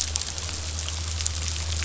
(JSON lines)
{"label": "anthrophony, boat engine", "recorder": "SoundTrap 500"}